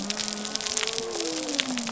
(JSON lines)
{"label": "biophony", "recorder": "SoundTrap 300"}